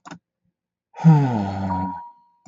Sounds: Sigh